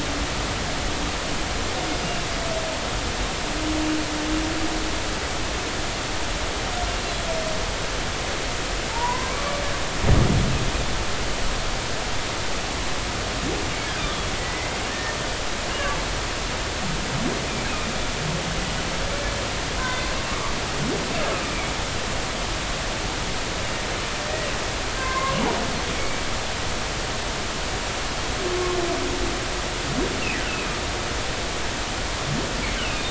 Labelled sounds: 8.9	9.6	humpback whale, 0.86 to 1.2 kHz
14.4	15.1	humpback whale, 1.7 to 2.1 kHz
19.8	20.1	humpback whale, 1.5 to 2.1 kHz
22.3	22.7	humpback whale, 2.2 to 2.7 kHz
25.0	26.2	humpback whale, 0.96 to 2.4 kHz
30.4	30.7	humpback whale, 2.5 to 3.0 kHz
32.8	33.0	humpback whale, 2.4 to 3.1 kHz

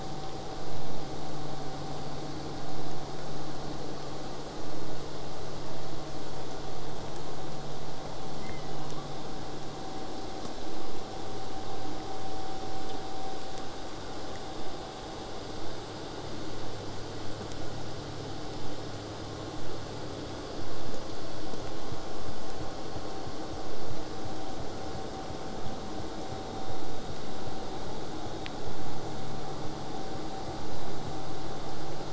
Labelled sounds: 8.4	9.2	killer whale, southern resident, J pod, 0.56 to 3.3 kHz

